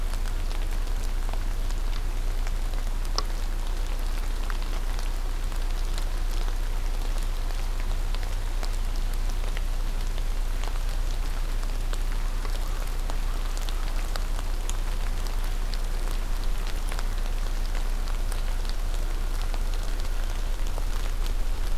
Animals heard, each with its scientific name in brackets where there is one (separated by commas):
American Crow (Corvus brachyrhynchos)